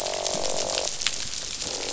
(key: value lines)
label: biophony, croak
recorder: SoundTrap 500